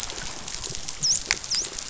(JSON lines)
{"label": "biophony, dolphin", "recorder": "SoundTrap 500"}